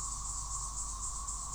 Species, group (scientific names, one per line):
Magicicada tredecula
Cicadidae